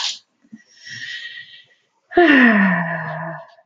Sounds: Sigh